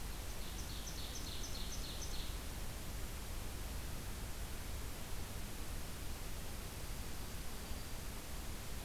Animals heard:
Ovenbird (Seiurus aurocapilla), Dark-eyed Junco (Junco hyemalis)

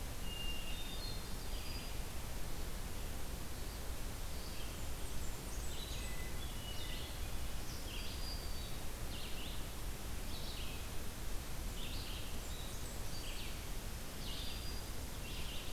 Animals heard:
Hermit Thrush (Catharus guttatus), Ovenbird (Seiurus aurocapilla), Red-eyed Vireo (Vireo olivaceus), Blackburnian Warbler (Setophaga fusca), Black-throated Green Warbler (Setophaga virens)

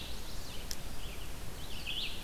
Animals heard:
Red-eyed Vireo (Vireo olivaceus), Chestnut-sided Warbler (Setophaga pensylvanica)

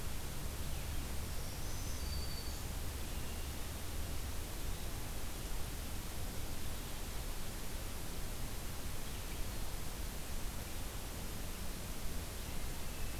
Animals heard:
Black-throated Green Warbler (Setophaga virens)

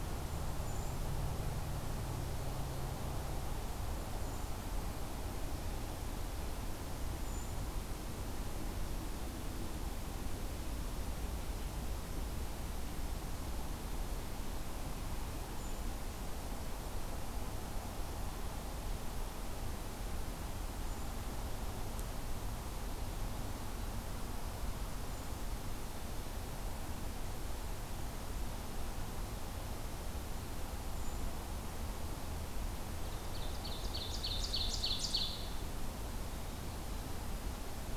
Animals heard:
Ovenbird (Seiurus aurocapilla), Brown Creeper (Certhia americana)

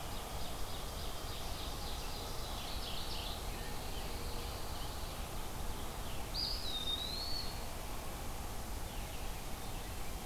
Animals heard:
Mourning Warbler (Geothlypis philadelphia), Ovenbird (Seiurus aurocapilla), Eastern Wood-Pewee (Contopus virens), Pine Warbler (Setophaga pinus)

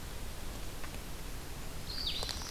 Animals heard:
Black-throated Green Warbler (Setophaga virens), Blue-headed Vireo (Vireo solitarius)

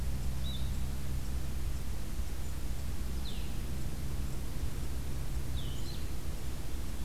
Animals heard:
Blue-headed Vireo (Vireo solitarius)

